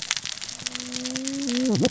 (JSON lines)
{"label": "biophony, cascading saw", "recorder": "SoundTrap 600 or HydroMoth"}